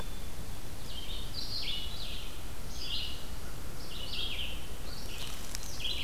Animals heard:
Red-eyed Vireo (Vireo olivaceus)

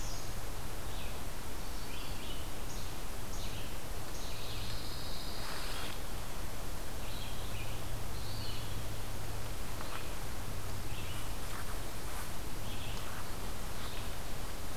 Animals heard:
Least Flycatcher (Empidonax minimus), Eastern Wood-Pewee (Contopus virens), Red-eyed Vireo (Vireo olivaceus), Pine Warbler (Setophaga pinus)

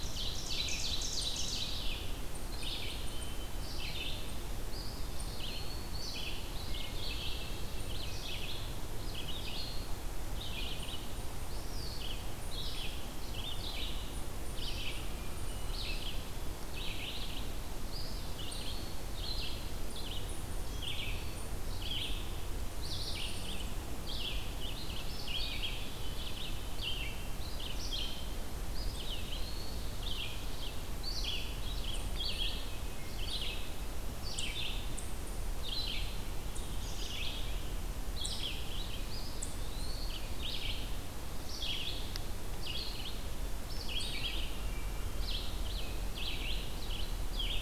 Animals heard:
Ovenbird (Seiurus aurocapilla), Eastern Wood-Pewee (Contopus virens), unidentified call, Red-eyed Vireo (Vireo olivaceus), American Robin (Turdus migratorius), Hermit Thrush (Catharus guttatus)

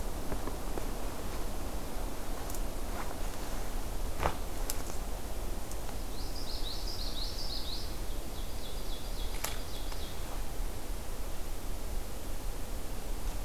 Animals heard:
Common Yellowthroat (Geothlypis trichas), Ovenbird (Seiurus aurocapilla)

